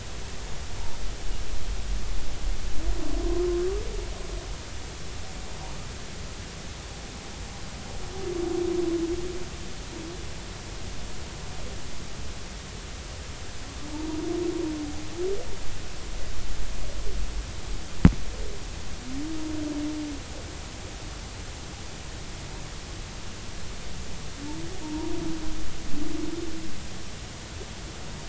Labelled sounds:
3.2	3.5	humpback whale, 0.99 to 1.1 kHz
13.9	14.2	humpback whale, 0.83 to 0.99 kHz
24.8	25.1	humpback whale, 0.90 to 1.0 kHz

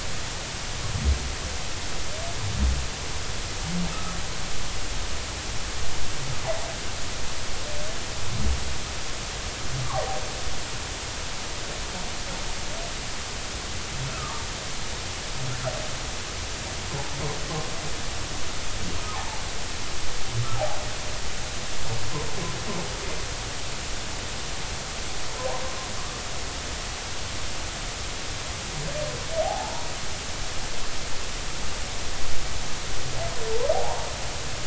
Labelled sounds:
9.8	10.1	humpback whale, 0.80 to 1.2 kHz
14.1	14.4	humpback whale, 1.1 to 1.4 kHz
19.1	19.4	humpback whale, 0.80 to 0.96 kHz
29.4	29.9	humpback whale, 0.80 to 0.99 kHz
33.7	34.1	humpback whale, 0.80 to 1.1 kHz

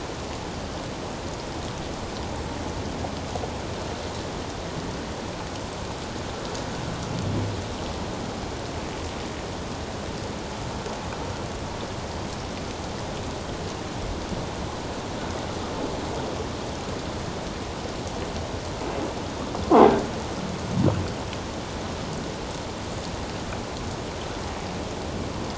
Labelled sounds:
19.6	19.9	croaking sound likely from a nearby submerged object, 0.78 to 1.2 kHz

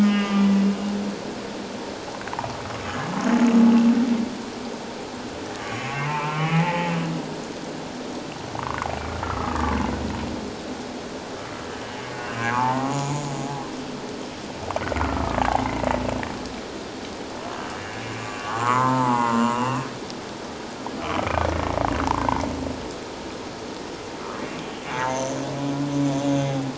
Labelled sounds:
0.0	0.7	humpback whale, 1.1 to 3.0 kHz
5.6	6.9	humpback whale, 0.78 to 3.0 kHz
9.2	9.6	humpback whale, 1.0 to 1.4 kHz
12.4	13.0	humpback whale, 0.78 to 2.0 kHz
15.0	15.6	humpback whale, 0.78 to 1.5 kHz
17.8	19.9	humpback whale, 0.81 to 2.9 kHz
22.2	22.5	humpback whale, 2.0 to 2.3 kHz
24.9	25.2	humpback whale, 0.78 to 1.1 kHz

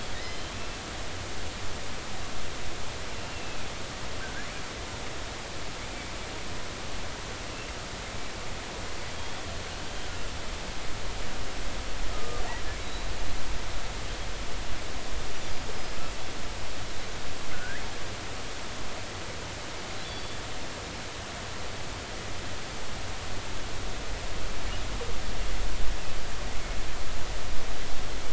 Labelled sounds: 0.1	0.5	killer whale, offshore, 1.8 to 3.2 kHz
3.1	4.5	killer whale, offshore, 1.4 to 2.8 kHz
9.1	9.4	killer whale, offshore, 3.2 to 3.5 kHz
12.1	13.0	killer whale, offshore, 1.1 to 4.0 kHz
17.5	17.8	killer whale, offshore, 1.4 to 2.1 kHz
20.0	20.4	killer whale, offshore, 3.3 to 4.7 kHz

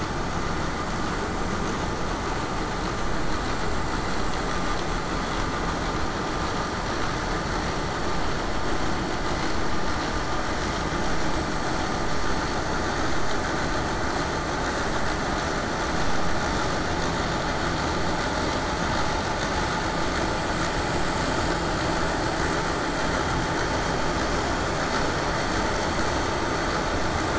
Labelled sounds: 17.9	23.0	vessel noise, 0 to 8.0 kHz

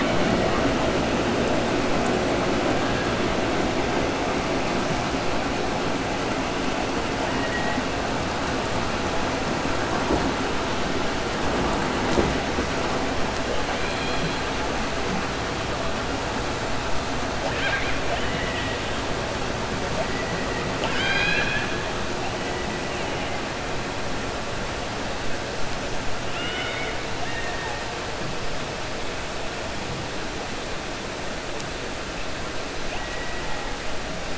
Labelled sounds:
13.7	14.4	killer whale, 2.3 to 4.9 kHz
17.4	18.0	killer whale, 0.79 to 4.1 kHz
20.7	21.8	killer whale, 0.74 to 6.4 kHz
26.2	27.8	killer whale, 0.80 to 3.7 kHz
32.8	33.7	killer whale, 0.83 to 3.0 kHz

